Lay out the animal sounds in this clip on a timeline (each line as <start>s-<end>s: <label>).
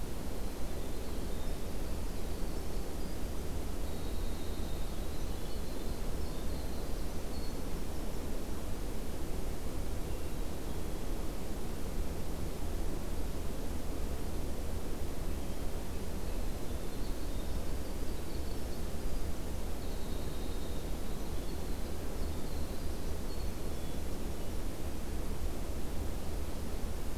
0.0s-8.8s: Winter Wren (Troglodytes hiemalis)
9.8s-11.0s: Hermit Thrush (Catharus guttatus)
15.1s-15.7s: Hermit Thrush (Catharus guttatus)
15.8s-24.7s: Winter Wren (Troglodytes hiemalis)
23.6s-24.6s: Black-capped Chickadee (Poecile atricapillus)